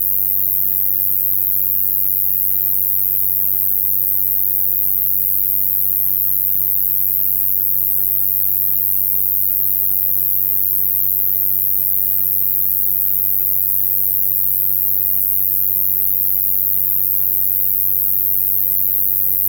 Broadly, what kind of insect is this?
orthopteran